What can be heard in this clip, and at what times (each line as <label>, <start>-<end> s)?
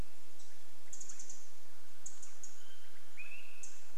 Pacific Wren call, 0-4 s
Swainson's Thrush call, 0-4 s